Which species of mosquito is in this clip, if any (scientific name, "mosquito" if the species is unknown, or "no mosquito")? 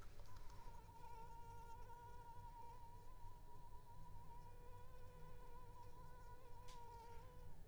Anopheles arabiensis